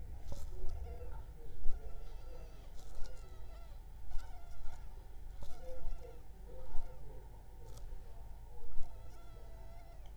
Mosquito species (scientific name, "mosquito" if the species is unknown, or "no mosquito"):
Culex pipiens complex